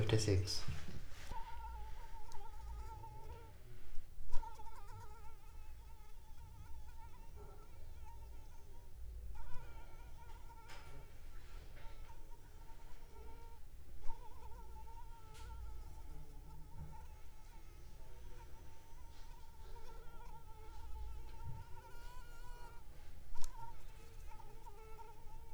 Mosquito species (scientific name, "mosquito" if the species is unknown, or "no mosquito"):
Anopheles arabiensis